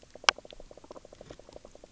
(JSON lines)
{"label": "biophony, knock croak", "recorder": "SoundTrap 300"}